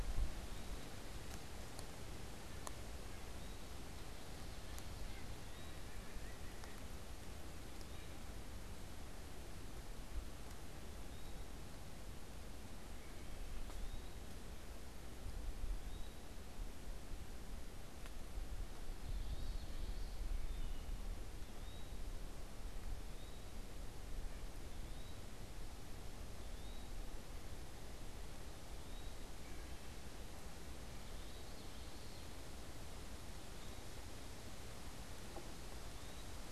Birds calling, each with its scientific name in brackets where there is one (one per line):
Common Yellowthroat (Geothlypis trichas)
Eastern Wood-Pewee (Contopus virens)
White-breasted Nuthatch (Sitta carolinensis)